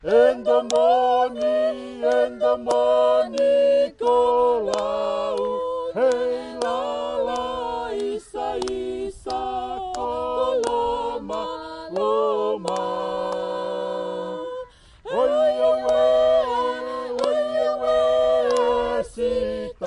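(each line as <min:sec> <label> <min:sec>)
0:00.0 A Fijian choir sings continuously in a rhythmic and high-pitched tone. 0:19.9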